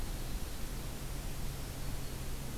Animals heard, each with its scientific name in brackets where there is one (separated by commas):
Ovenbird (Seiurus aurocapilla), Black-throated Green Warbler (Setophaga virens)